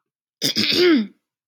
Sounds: Throat clearing